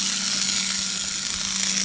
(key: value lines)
label: anthrophony, boat engine
recorder: HydroMoth